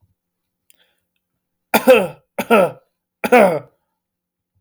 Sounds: Cough